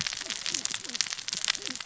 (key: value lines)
label: biophony, cascading saw
recorder: SoundTrap 600 or HydroMoth